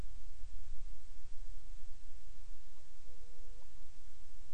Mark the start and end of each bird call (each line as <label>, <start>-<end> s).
Hawaiian Petrel (Pterodroma sandwichensis), 2.6-3.8 s